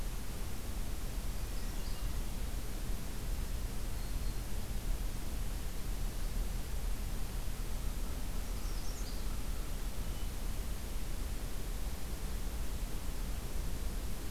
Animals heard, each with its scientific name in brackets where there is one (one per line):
Black-throated Green Warbler (Setophaga virens)
Magnolia Warbler (Setophaga magnolia)